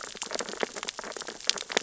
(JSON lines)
{"label": "biophony, sea urchins (Echinidae)", "recorder": "SoundTrap 600 or HydroMoth"}